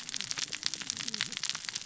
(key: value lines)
label: biophony, cascading saw
recorder: SoundTrap 600 or HydroMoth